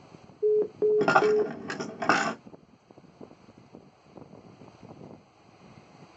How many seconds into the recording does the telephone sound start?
0.4 s